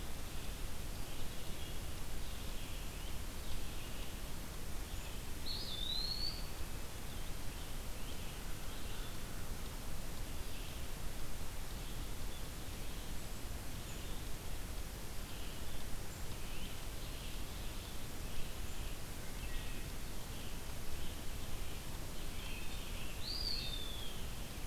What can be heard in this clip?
Red-eyed Vireo, Eastern Wood-Pewee, American Crow, Great Crested Flycatcher, Wood Thrush